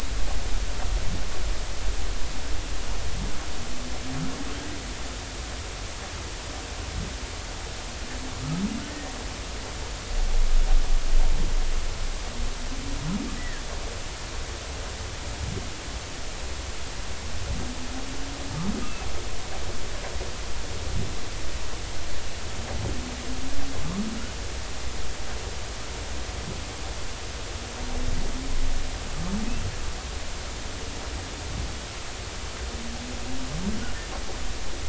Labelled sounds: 13.4	13.6	humpback whale, 1.6 to 2.0 kHz
18.8	19.1	humpback whale, 2.6 to 2.8 kHz

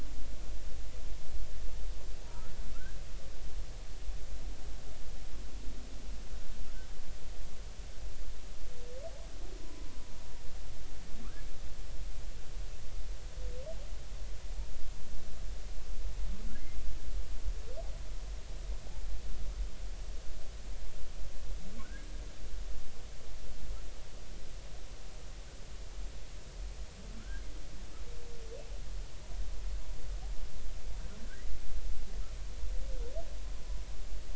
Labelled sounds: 2.3	2.5	humpback whale, 1.2 to 1.4 kHz
9.6	9.9	humpback whale, 0.96 to 1.1 kHz
27.2	27.4	humpback whale, 1.3 to 1.7 kHz

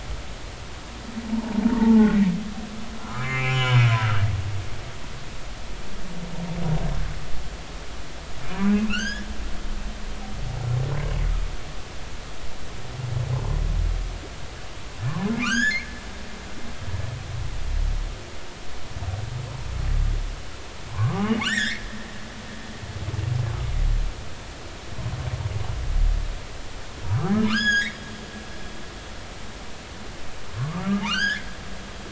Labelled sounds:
1.3	2.1	humpback whale, 0.80 to 1.1 kHz
3.0	4.8	humpback whale, 0.93 to 3.1 kHz
8.4	9.3	humpback whale, 1.3 to 6.9 kHz
15.4	15.8	humpback whale, 1.1 to 7.1 kHz
20.9	21.8	humpback whale, 0.93 to 7.4 kHz
27.4	28.0	humpback whale, 1.1 to 8.0 kHz
30.6	31.5	humpback whale, 0.80 to 6.8 kHz

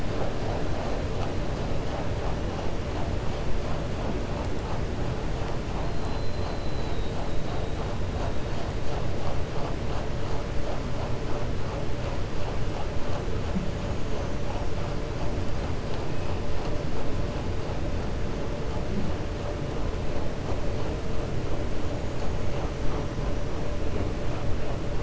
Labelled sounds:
5.9	7.1	killer whale, 3.7 to 5.0 kHz

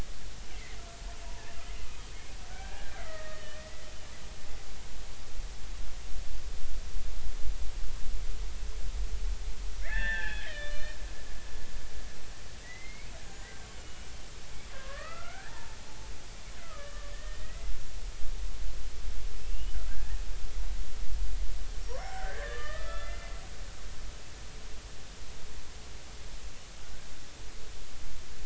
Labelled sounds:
0.5	0.8	killer whale, Bigg's (transient), 1.8 to 2.2 kHz
2.5	3.9	killer whale, Bigg's (transient), 0.80 to 2.5 kHz
9.8	11.0	killer whale, Bigg's (transient), 0.80 to 4.3 kHz
12.6	14.1	killer whale, Bigg's (transient), 1.5 to 7.1 kHz
14.7	15.8	killer whale, Bigg's (transient), 0.83 to 2.7 kHz
16.7	18.1	killer whale, Bigg's (transient), 1.1 to 2.1 kHz
19.4	20.2	killer whale, Bigg's (transient), 1.5 to 3.1 kHz
22.0	23.3	killer whale, Bigg's (transient), 0.80 to 3.6 kHz

